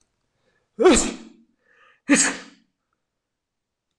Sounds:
Sneeze